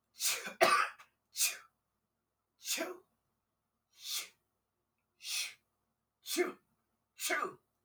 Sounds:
Sneeze